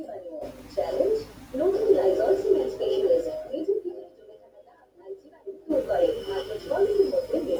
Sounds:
Cough